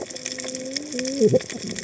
{"label": "biophony, cascading saw", "recorder": "HydroMoth"}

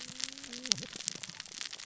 {"label": "biophony, cascading saw", "recorder": "SoundTrap 600 or HydroMoth"}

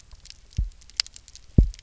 {"label": "biophony, double pulse", "recorder": "SoundTrap 300"}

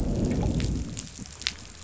{"label": "biophony, growl", "recorder": "SoundTrap 500"}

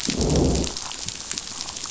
{"label": "biophony, growl", "recorder": "SoundTrap 500"}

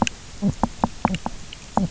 {"label": "biophony, knock croak", "recorder": "SoundTrap 300"}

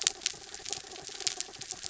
{"label": "anthrophony, mechanical", "recorder": "SoundTrap 300"}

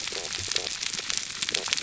{"label": "biophony", "recorder": "SoundTrap 300"}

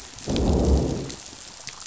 {"label": "biophony, growl", "recorder": "SoundTrap 500"}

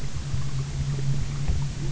{"label": "anthrophony, boat engine", "recorder": "SoundTrap 300"}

